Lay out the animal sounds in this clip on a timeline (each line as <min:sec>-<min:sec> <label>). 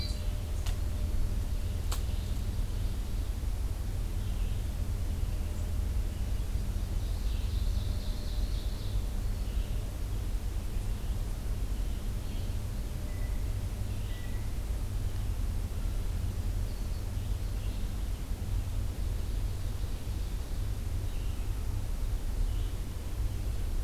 0:00.0-0:23.8 Red-eyed Vireo (Vireo olivaceus)
0:06.8-0:09.1 Ovenbird (Seiurus aurocapilla)
0:18.9-0:20.7 Ovenbird (Seiurus aurocapilla)